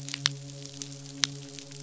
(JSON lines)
{"label": "biophony, midshipman", "recorder": "SoundTrap 500"}